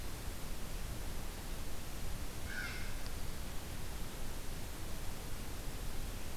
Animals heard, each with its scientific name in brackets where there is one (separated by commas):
Blue Jay (Cyanocitta cristata)